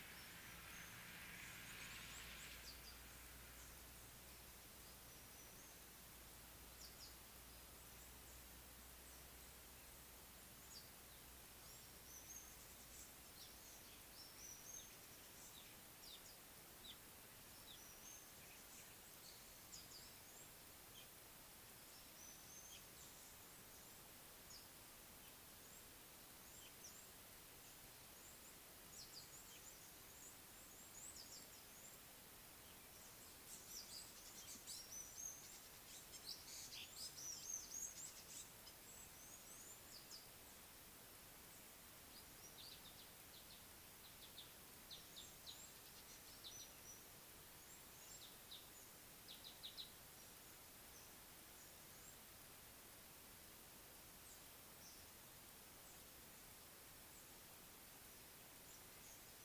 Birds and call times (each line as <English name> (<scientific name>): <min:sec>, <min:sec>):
African Gray Flycatcher (Bradornis microrhynchus): 0:35.1
Red-cheeked Cordonbleu (Uraeginthus bengalus): 0:39.5
Scarlet-chested Sunbird (Chalcomitra senegalensis): 0:45.2, 0:49.6